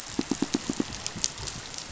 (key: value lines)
label: biophony, pulse
recorder: SoundTrap 500